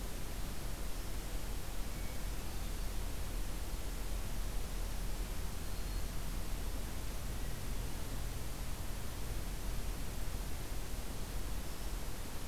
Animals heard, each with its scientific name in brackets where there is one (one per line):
Black-throated Green Warbler (Setophaga virens)